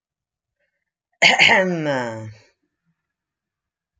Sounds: Throat clearing